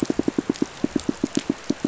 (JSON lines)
{"label": "biophony, pulse", "recorder": "SoundTrap 500"}